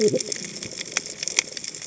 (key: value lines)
label: biophony, cascading saw
recorder: HydroMoth